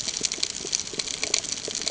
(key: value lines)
label: ambient
recorder: HydroMoth